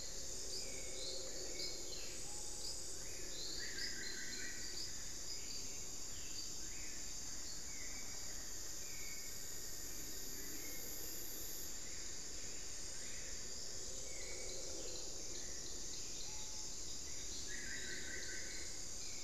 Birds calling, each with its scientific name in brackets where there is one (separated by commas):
Screaming Piha (Lipaugus vociferans), Solitary Black Cacique (Cacicus solitarius), Hauxwell's Thrush (Turdus hauxwelli), unidentified bird